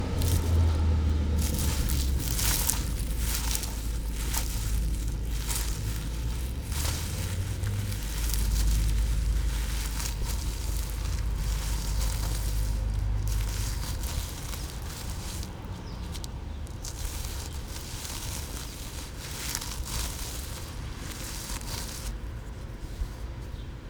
Are people talking?
no